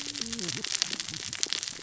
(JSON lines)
{"label": "biophony, cascading saw", "recorder": "SoundTrap 600 or HydroMoth"}